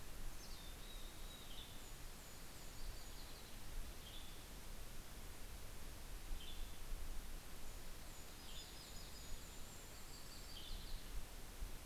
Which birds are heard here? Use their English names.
Mountain Chickadee, Yellow-rumped Warbler, Western Tanager